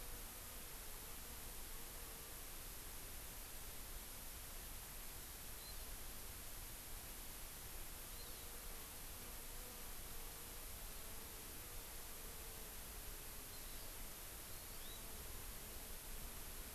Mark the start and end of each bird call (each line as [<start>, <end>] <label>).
[5.54, 5.94] Hawaii Amakihi (Chlorodrepanis virens)
[8.14, 8.44] Hawaii Amakihi (Chlorodrepanis virens)
[13.44, 13.94] Hawaii Amakihi (Chlorodrepanis virens)
[14.54, 14.94] Hawaii Amakihi (Chlorodrepanis virens)